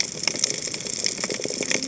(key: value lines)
label: biophony, cascading saw
recorder: HydroMoth